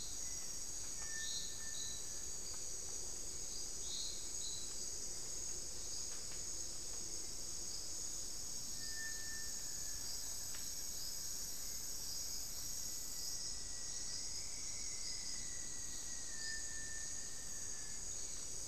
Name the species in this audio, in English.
Cinereous Tinamou, Rufous-fronted Antthrush